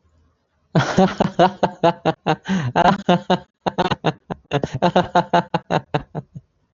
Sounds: Laughter